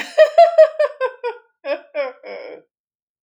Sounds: Laughter